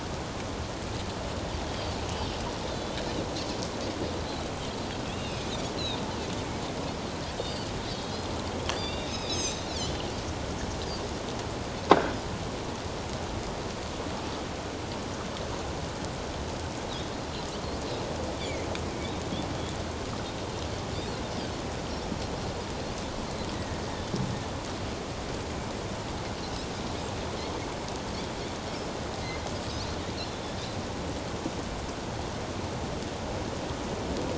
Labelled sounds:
1.7	1.9	Pacific white-sided dolphin, 3.0 to 3.4 kHz
2.7	3.0	Pacific white-sided dolphin, 3.4 to 3.7 kHz
5.1	5.5	Pacific white-sided dolphin, 2.3 to 4.2 kHz
7.8	8.2	Pacific white-sided dolphin, 3.2 to 4.2 kHz
8.7	10.1	Pacific white-sided dolphin, 2.4 to 6.7 kHz
18.4	18.7	Pacific white-sided dolphin, 2.0 to 2.4 kHz
23.5	23.8	Pacific white-sided dolphin, 1.8 to 2.0 kHz

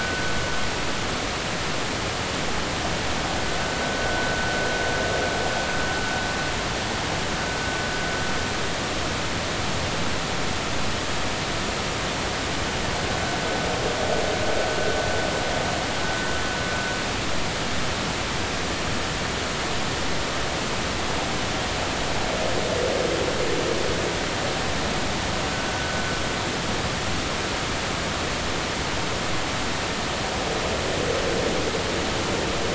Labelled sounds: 4.0	4.3	vessel noise, 1.4 to 1.6 kHz

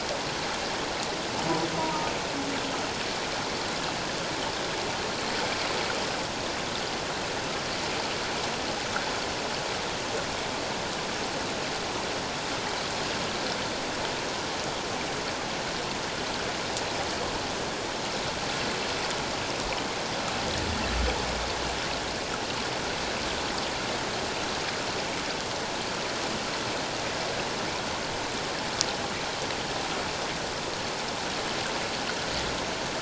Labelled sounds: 1.8	2.1	humpback whale, 0.88 to 1.0 kHz

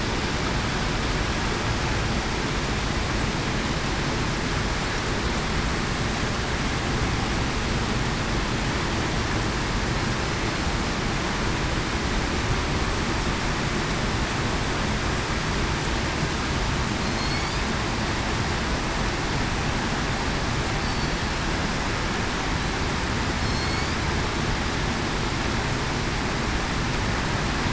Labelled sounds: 17.2	17.5	killer whale, southern resident, 4.2 to 4.6 kHz
23.4	23.9	killer whale, southern resident, 4.2 to 4.5 kHz

